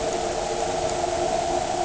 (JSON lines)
{"label": "anthrophony, boat engine", "recorder": "HydroMoth"}